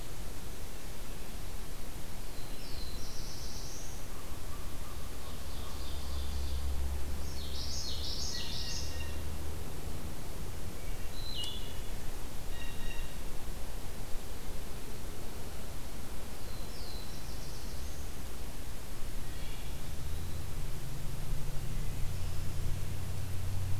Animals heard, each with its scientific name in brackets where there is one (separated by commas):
Eastern Wood-Pewee (Contopus virens), Wood Thrush (Hylocichla mustelina), American Crow (Corvus brachyrhynchos), Black-throated Blue Warbler (Setophaga caerulescens), Ovenbird (Seiurus aurocapilla), Common Yellowthroat (Geothlypis trichas), Blue Jay (Cyanocitta cristata)